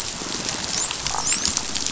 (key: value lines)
label: biophony, dolphin
recorder: SoundTrap 500